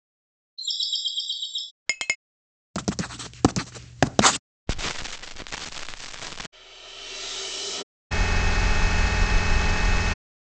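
First, there is bird vocalization. Then you can hear chinking. Afterwards, writing is audible. Later, crackling is heard. Following that, you can hear whooshing. Then an engine is audible.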